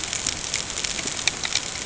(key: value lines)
label: ambient
recorder: HydroMoth